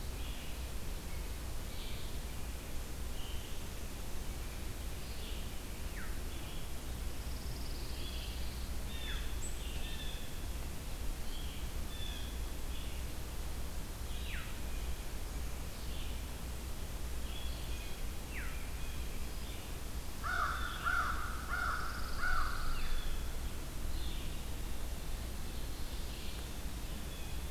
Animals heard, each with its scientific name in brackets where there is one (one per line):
Blue Jay (Cyanocitta cristata)
Veery (Catharus fuscescens)
Pine Warbler (Setophaga pinus)
American Crow (Corvus brachyrhynchos)
American Robin (Turdus migratorius)
Red-eyed Vireo (Vireo olivaceus)